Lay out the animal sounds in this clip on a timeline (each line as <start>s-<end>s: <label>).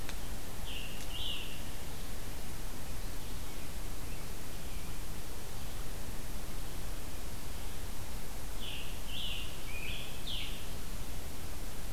0.6s-1.8s: Scarlet Tanager (Piranga olivacea)
8.4s-10.9s: Scarlet Tanager (Piranga olivacea)